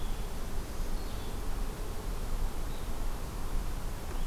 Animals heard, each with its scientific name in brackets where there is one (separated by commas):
Red-eyed Vireo (Vireo olivaceus), Black-throated Green Warbler (Setophaga virens)